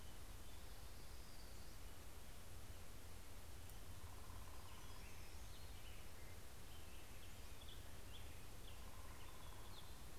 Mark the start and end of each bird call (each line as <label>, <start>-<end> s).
Black-headed Grosbeak (Pheucticus melanocephalus), 2.7-10.2 s
Hermit Warbler (Setophaga occidentalis), 3.3-6.6 s